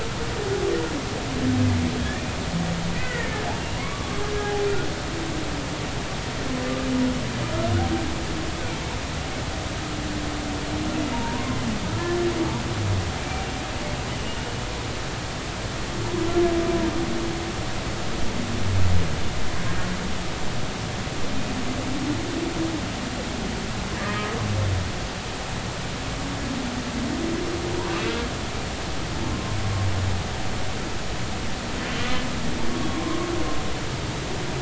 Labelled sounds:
2.9	4.6	humpback whale, 0.80 to 2.1 kHz
11.1	11.6	humpback whale, 0.86 to 1.1 kHz
23.9	24.2	humpback whale, 1.6 to 1.9 kHz
29.3	29.6	humpback whale, 1.0 to 1.1 kHz
32.9	33.2	humpback whale, 0.99 to 1.1 kHz

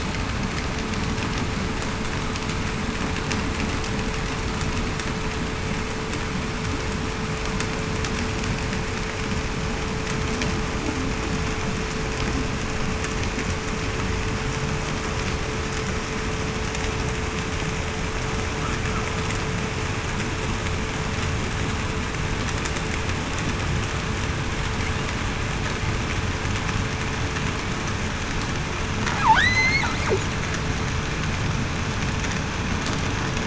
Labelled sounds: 29.4	29.8	killer whale, southern resident, 3.0 to 8.0 kHz

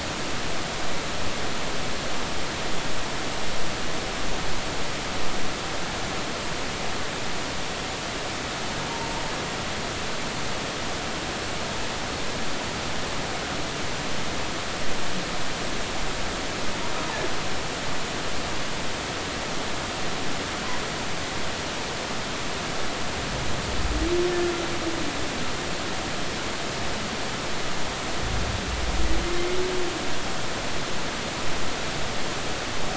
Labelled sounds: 8.9	9.2	humpback whale, 0.86 to 0.99 kHz

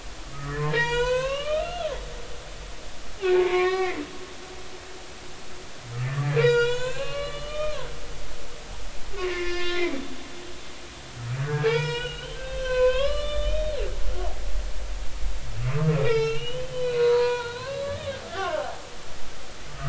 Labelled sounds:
0.3	2.0	humpback whale, 0.86 to 7.8 kHz
3.2	4.0	humpback whale, 0.83 to 2.7 kHz
6.2	7.8	humpback whale, 0.90 to 7.5 kHz
9.2	9.9	humpback whale, 0.99 to 5.0 kHz
11.4	13.8	humpback whale, 0.83 to 7.8 kHz
14.2	14.4	humpback whale, 0.80 to 1.2 kHz
15.7	18.8	humpback whale, 0.80 to 5.5 kHz

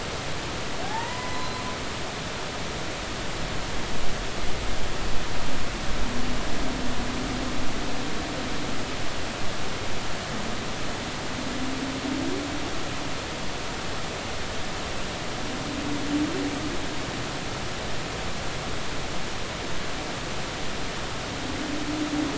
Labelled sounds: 0.8	1.6	humpback whale, 0.80 to 4.1 kHz

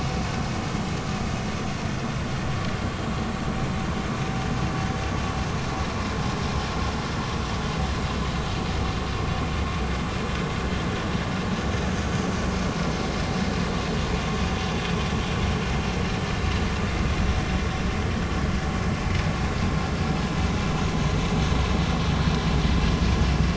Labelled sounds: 22.1	22.3	vessel noise, 4.2 to 4.4 kHz

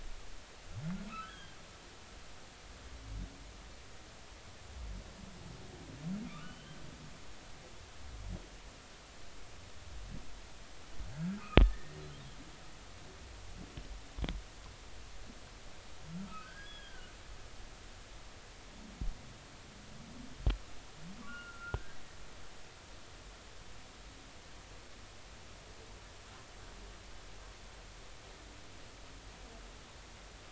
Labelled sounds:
1.1	1.6	humpback whale, 1.2 to 3.4 kHz
6.2	6.8	humpback whale, 1.1 to 3.2 kHz
11.6	12.0	humpback whale, 1.7 to 2.0 kHz
16.1	17.1	humpback whale, 1.0 to 3.6 kHz
21.3	22.0	humpback whale, 1.3 to 2.9 kHz

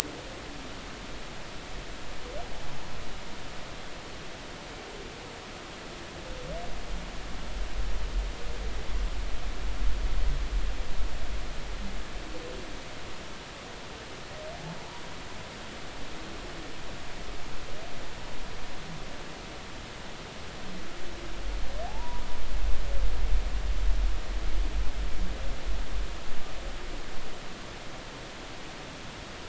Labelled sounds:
21.9	22.2	humpback whale, 0.80 to 1.0 kHz

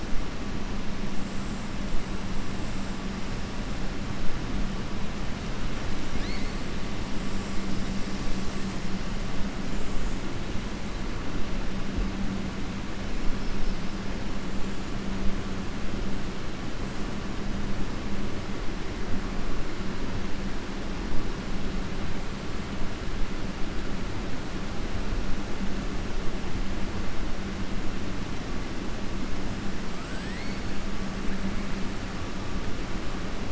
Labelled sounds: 6.1	6.6	killer whale, southern resident, 1.7 to 5.8 kHz
30.0	30.5	killer whale, southern resident, 1.3 to 3.0 kHz

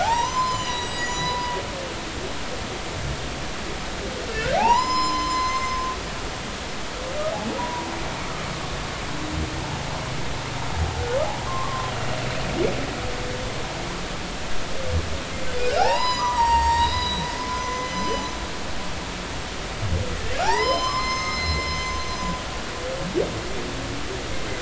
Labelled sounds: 0.0	1.6	humpback whale, 0.80 to 7.9 kHz
4.6	5.8	humpback whale, 0.80 to 7.3 kHz
7.6	7.9	humpback whale, 0.90 to 1.0 kHz
11.5	11.9	humpback whale, 0.99 to 1.2 kHz
15.5	18.4	humpback whale, 0.80 to 8.0 kHz
20.4	22.0	humpback whale, 0.80 to 7.3 kHz

